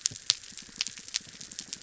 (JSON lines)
{"label": "biophony", "recorder": "SoundTrap 300"}